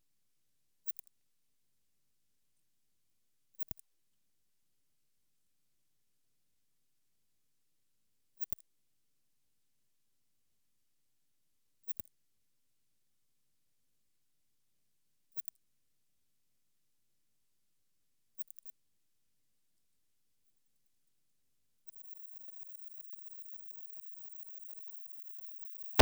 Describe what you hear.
Odontura maroccana, an orthopteran